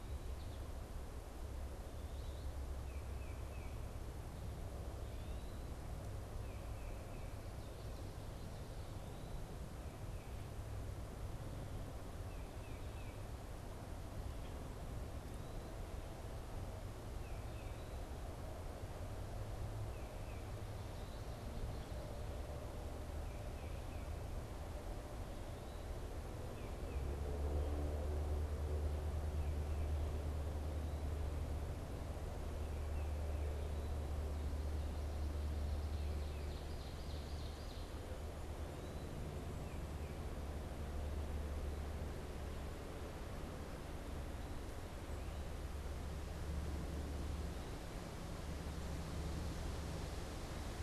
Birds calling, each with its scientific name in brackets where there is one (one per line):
Tufted Titmouse (Baeolophus bicolor)
Ovenbird (Seiurus aurocapilla)